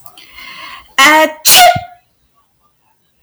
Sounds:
Sneeze